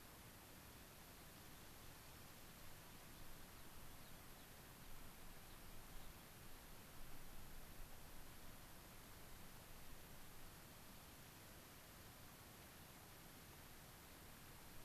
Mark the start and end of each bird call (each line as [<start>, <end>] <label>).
[1.05, 1.95] American Pipit (Anthus rubescens)
[3.45, 4.55] Gray-crowned Rosy-Finch (Leucosticte tephrocotis)
[5.45, 6.25] Gray-crowned Rosy-Finch (Leucosticte tephrocotis)